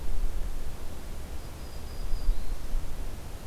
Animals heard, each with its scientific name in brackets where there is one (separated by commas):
Black-throated Green Warbler (Setophaga virens)